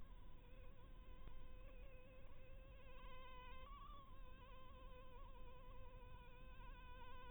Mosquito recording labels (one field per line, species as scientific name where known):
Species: Anopheles harrisoni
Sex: female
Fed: blood-fed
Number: one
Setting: cup